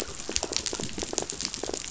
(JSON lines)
{"label": "biophony, rattle", "recorder": "SoundTrap 500"}